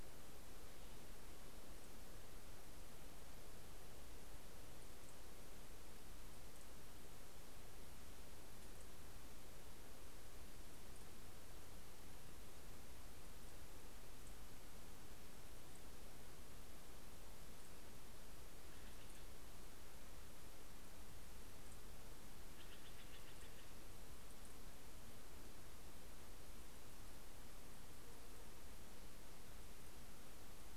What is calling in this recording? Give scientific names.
Cyanocitta stelleri